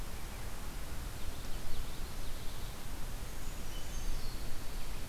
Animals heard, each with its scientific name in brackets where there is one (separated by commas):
Common Yellowthroat (Geothlypis trichas), Dark-eyed Junco (Junco hyemalis), Brown Creeper (Certhia americana)